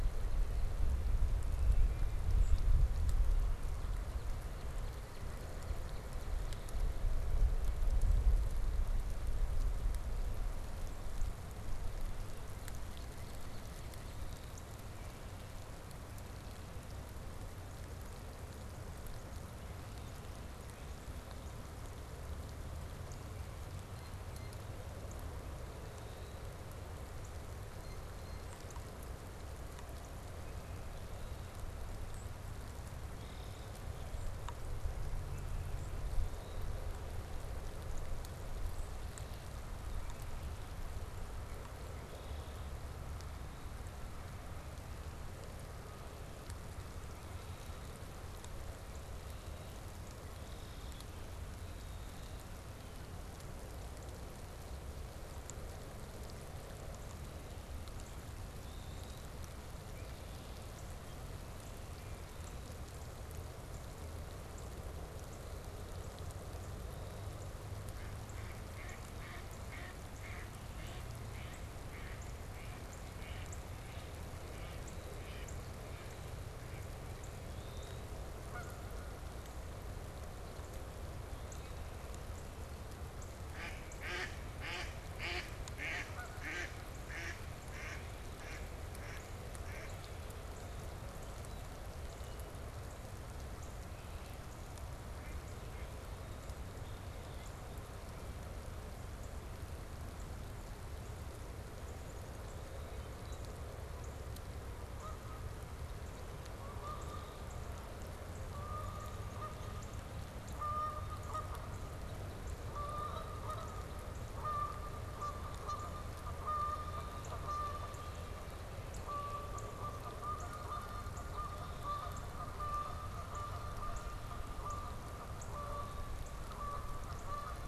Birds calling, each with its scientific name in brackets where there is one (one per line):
Song Sparrow (Melospiza melodia)
Canada Goose (Branta canadensis)
Red-winged Blackbird (Agelaius phoeniceus)
Mallard (Anas platyrhynchos)
Blue Jay (Cyanocitta cristata)
Northern Cardinal (Cardinalis cardinalis)